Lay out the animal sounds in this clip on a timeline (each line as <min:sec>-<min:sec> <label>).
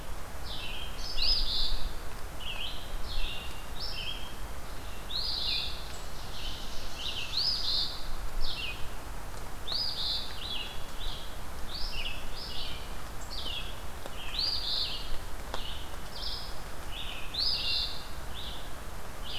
0:00.0-0:19.4 Red-eyed Vireo (Vireo olivaceus)
0:01.0-0:01.9 Eastern Phoebe (Sayornis phoebe)
0:02.4-0:04.5 American Robin (Turdus migratorius)
0:05.0-0:05.9 Eastern Phoebe (Sayornis phoebe)
0:05.7-0:07.7 Ovenbird (Seiurus aurocapilla)
0:07.2-0:08.1 Eastern Phoebe (Sayornis phoebe)
0:09.5-0:10.6 Eastern Phoebe (Sayornis phoebe)
0:14.2-0:15.1 Eastern Phoebe (Sayornis phoebe)
0:17.2-0:18.1 Eastern Phoebe (Sayornis phoebe)